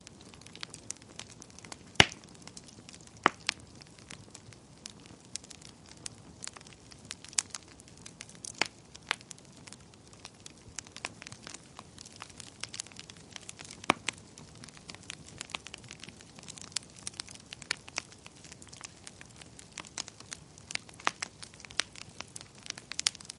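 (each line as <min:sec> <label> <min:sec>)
0:00.1 Fire burning with crackling sounds. 0:23.3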